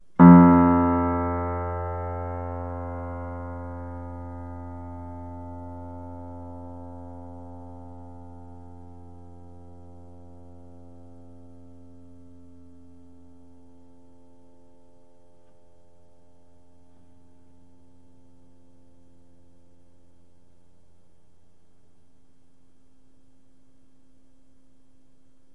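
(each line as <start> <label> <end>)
0.2 A single piano note is played with a long echo. 25.5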